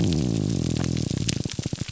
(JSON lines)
{"label": "biophony, grouper groan", "recorder": "SoundTrap 300"}